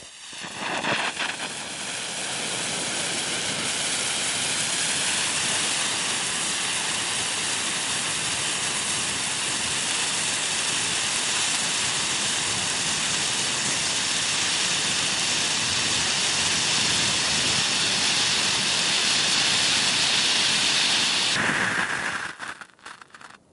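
0.0s A volcano erupts loudly with rhythmic fiery bursts outdoors. 23.5s

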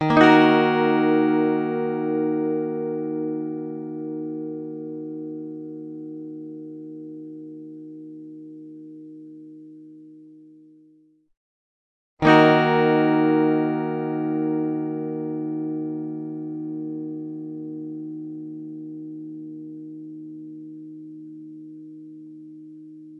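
0.0s A chord is played and gradually fades, with a pause in between. 23.2s

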